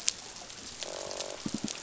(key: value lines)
label: biophony
recorder: SoundTrap 500

label: biophony, croak
recorder: SoundTrap 500